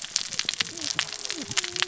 {"label": "biophony, cascading saw", "recorder": "SoundTrap 600 or HydroMoth"}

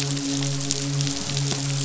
{"label": "biophony, midshipman", "recorder": "SoundTrap 500"}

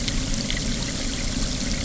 {"label": "anthrophony, boat engine", "recorder": "SoundTrap 300"}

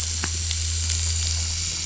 {"label": "anthrophony, boat engine", "recorder": "SoundTrap 500"}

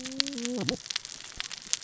{"label": "biophony, cascading saw", "recorder": "SoundTrap 600 or HydroMoth"}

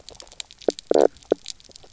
{"label": "biophony, knock croak", "recorder": "SoundTrap 300"}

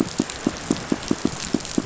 {"label": "biophony, pulse", "recorder": "SoundTrap 500"}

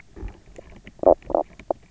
{"label": "biophony, knock croak", "recorder": "SoundTrap 300"}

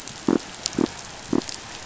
{"label": "biophony", "recorder": "SoundTrap 500"}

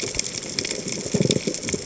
{"label": "biophony, chatter", "recorder": "HydroMoth"}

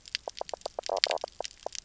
{"label": "biophony, knock croak", "recorder": "SoundTrap 300"}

